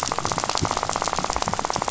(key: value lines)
label: biophony, rattle
recorder: SoundTrap 500